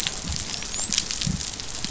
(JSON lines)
{"label": "biophony, dolphin", "recorder": "SoundTrap 500"}